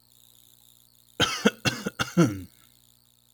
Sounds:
Cough